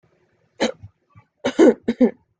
{"expert_labels": [{"quality": "good", "cough_type": "dry", "dyspnea": false, "wheezing": false, "stridor": false, "choking": false, "congestion": false, "nothing": true, "diagnosis": "healthy cough", "severity": "pseudocough/healthy cough"}], "age": 28, "gender": "female", "respiratory_condition": false, "fever_muscle_pain": false, "status": "symptomatic"}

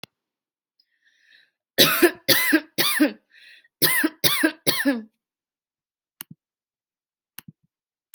{"expert_labels": [{"quality": "good", "cough_type": "dry", "dyspnea": false, "wheezing": true, "stridor": false, "choking": false, "congestion": false, "nothing": false, "diagnosis": "obstructive lung disease", "severity": "mild"}], "age": 22, "gender": "female", "respiratory_condition": false, "fever_muscle_pain": false, "status": "symptomatic"}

